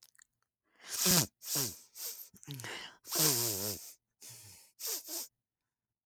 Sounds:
Sniff